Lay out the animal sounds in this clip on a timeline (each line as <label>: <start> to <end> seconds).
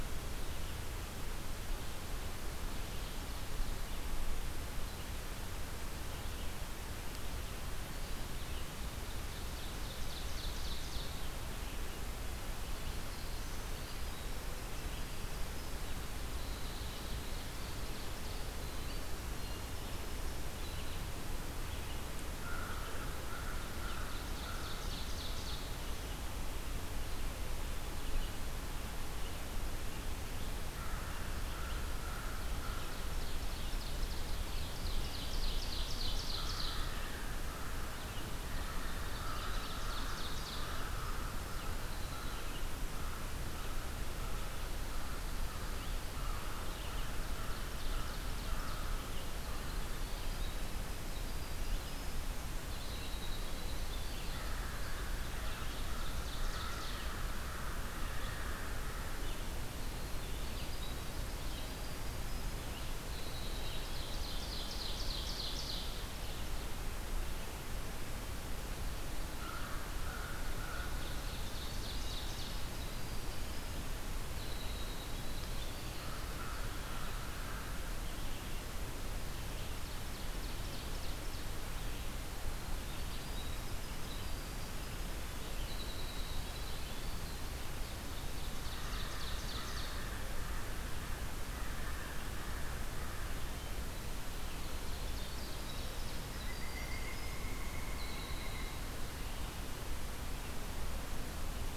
Red-eyed Vireo (Vireo olivaceus): 0.0 to 8.7 seconds
Ovenbird (Seiurus aurocapilla): 9.0 to 11.3 seconds
Black-throated Blue Warbler (Setophaga caerulescens): 12.7 to 13.7 seconds
Winter Wren (Troglodytes hiemalis): 13.7 to 21.2 seconds
Ovenbird (Seiurus aurocapilla): 16.9 to 18.5 seconds
American Crow (Corvus brachyrhynchos): 22.2 to 25.0 seconds
Ovenbird (Seiurus aurocapilla): 23.8 to 25.7 seconds
American Crow (Corvus brachyrhynchos): 30.6 to 32.9 seconds
Ovenbird (Seiurus aurocapilla): 32.2 to 37.0 seconds
American Crow (Corvus brachyrhynchos): 36.3 to 50.2 seconds
Ovenbird (Seiurus aurocapilla): 38.7 to 40.9 seconds
Winter Wren (Troglodytes hiemalis): 40.6 to 42.6 seconds
Red-eyed Vireo (Vireo olivaceus): 42.2 to 90.0 seconds
Ovenbird (Seiurus aurocapilla): 46.6 to 49.0 seconds
Winter Wren (Troglodytes hiemalis): 49.1 to 54.7 seconds
American Crow (Corvus brachyrhynchos): 54.0 to 59.4 seconds
Ovenbird (Seiurus aurocapilla): 55.3 to 57.1 seconds
Winter Wren (Troglodytes hiemalis): 59.5 to 65.0 seconds
Ovenbird (Seiurus aurocapilla): 63.3 to 66.1 seconds
American Crow (Corvus brachyrhynchos): 69.3 to 71.1 seconds
Ovenbird (Seiurus aurocapilla): 70.8 to 72.7 seconds
Winter Wren (Troglodytes hiemalis): 72.3 to 76.4 seconds
American Crow (Corvus brachyrhynchos): 75.8 to 79.1 seconds
Ovenbird (Seiurus aurocapilla): 79.6 to 81.7 seconds
Winter Wren (Troglodytes hiemalis): 82.6 to 87.9 seconds
Ovenbird (Seiurus aurocapilla): 87.9 to 90.2 seconds
American Crow (Corvus brachyrhynchos): 88.7 to 93.5 seconds
Winter Wren (Troglodytes hiemalis): 94.0 to 98.9 seconds
Ovenbird (Seiurus aurocapilla): 94.4 to 96.5 seconds
Pileated Woodpecker (Dryocopus pileatus): 96.4 to 99.0 seconds